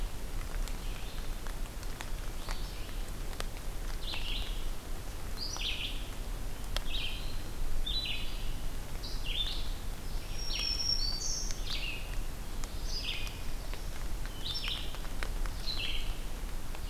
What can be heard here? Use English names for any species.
Red-eyed Vireo, Black-throated Green Warbler